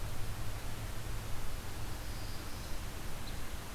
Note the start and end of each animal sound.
1.7s-3.0s: Black-throated Blue Warbler (Setophaga caerulescens)

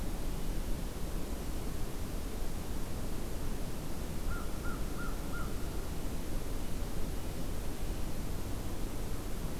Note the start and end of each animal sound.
4.2s-5.6s: American Crow (Corvus brachyrhynchos)

